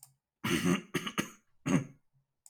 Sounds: Throat clearing